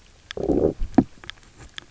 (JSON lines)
{"label": "biophony, low growl", "recorder": "SoundTrap 300"}